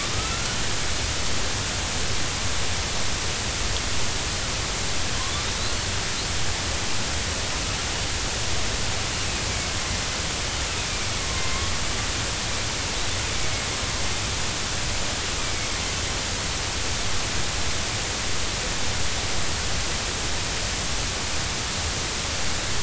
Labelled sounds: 0.1	0.6	killer whale, northern resident, 1.2 to 1.5 kHz
5.6	5.9	killer whale, northern resident, 3.7 to 4.4 kHz
10.9	11.6	killer whale, northern resident, 2.0 to 2.4 kHz

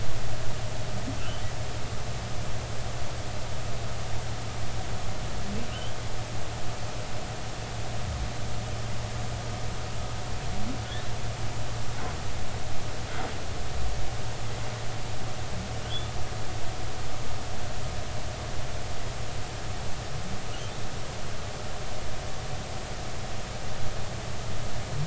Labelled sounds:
1.2	1.4	humpback whale, 2.6 to 3.1 kHz
15.9	16.1	humpback whale, 3.1 to 3.6 kHz

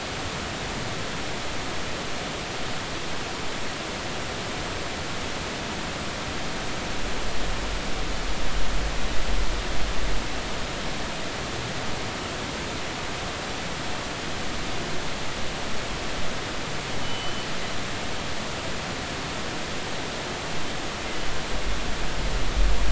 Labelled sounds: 17.0	17.5	killer whale, northern resident, G clan, 2.9 to 3.1 kHz

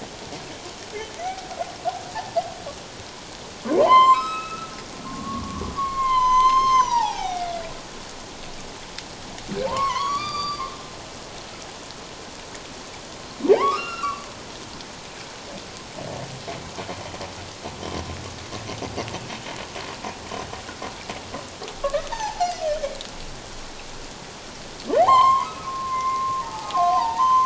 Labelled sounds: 1.2	1.4	humpback whale, 1.9 to 2.4 kHz
3.6	4.7	humpback whale, 0.84 to 5.3 kHz
5.1	7.5	humpback whale, 0.78 to 7.4 kHz
9.7	10.7	humpback whale, 0.84 to 6.0 kHz
13.5	14.3	humpback whale, 0.78 to 4.2 kHz
21.8	22.6	humpback whale, 0.78 to 1.9 kHz
24.9	27.3	humpback whale, 0.78 to 5.4 kHz

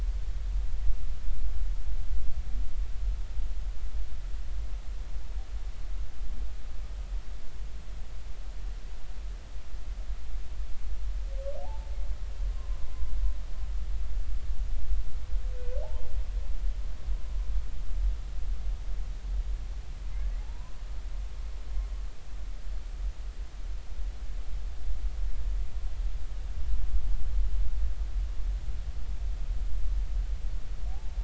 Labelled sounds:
11.6	11.9	humpback whale, 0.80 to 0.93 kHz
12.5	12.9	humpback whale, 0.96 to 1.1 kHz
20.4	20.7	humpback whale, 0.80 to 1.1 kHz
30.9	31.2	humpback whale, 0.80 to 0.93 kHz

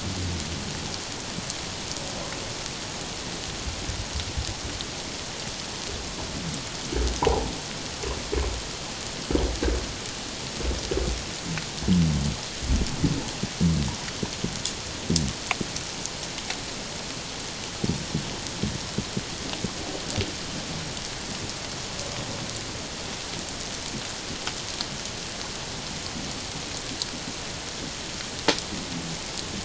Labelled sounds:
7.2	7.5	humpback whale, 0.78 to 1.1 kHz

